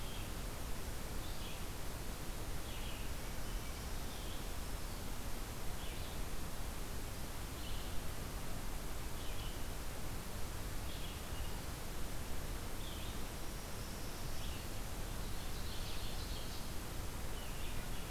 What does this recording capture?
Red-eyed Vireo, Ovenbird